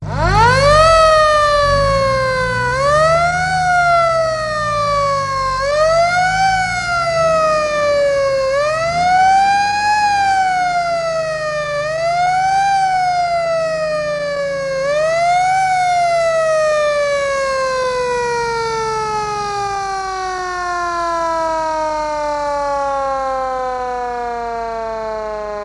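An alarm siren wails with a fading engine hum, followed by a long shutdown. 0.0 - 25.6

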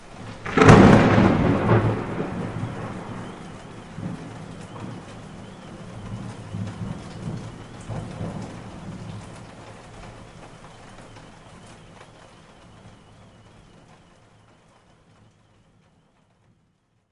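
Light rain falling. 0.0 - 14.1
Thunder rumbles in the distance. 0.2 - 3.5
Light thunder rumbles. 3.9 - 9.3

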